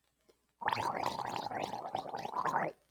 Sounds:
Throat clearing